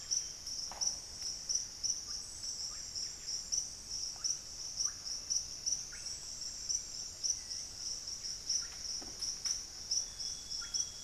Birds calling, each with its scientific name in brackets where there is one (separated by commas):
Amazonian Grosbeak (Cyanoloxia rothschildii), Buff-breasted Wren (Cantorchilus leucotis), Russet-backed Oropendola (Psarocolius angustifrons), Hauxwell's Thrush (Turdus hauxwelli)